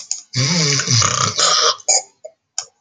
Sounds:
Throat clearing